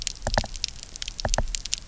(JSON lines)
{"label": "biophony, knock", "recorder": "SoundTrap 300"}